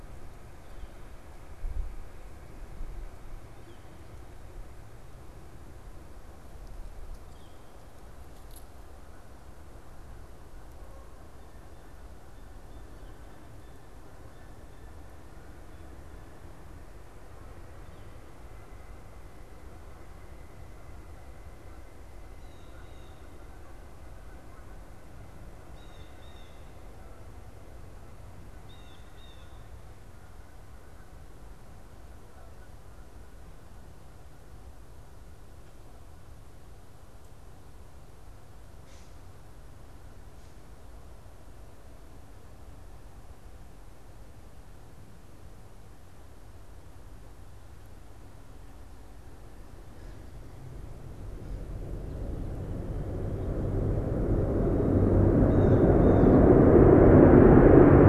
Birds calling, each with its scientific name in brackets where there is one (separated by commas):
Blue Jay (Cyanocitta cristata), Northern Flicker (Colaptes auratus)